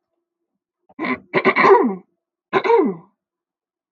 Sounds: Throat clearing